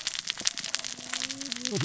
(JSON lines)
{"label": "biophony, cascading saw", "recorder": "SoundTrap 600 or HydroMoth"}